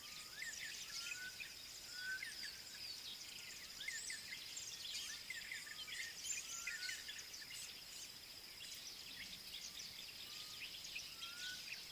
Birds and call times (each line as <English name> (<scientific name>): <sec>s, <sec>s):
D'Arnaud's Barbet (Trachyphonus darnaudii): 4.0s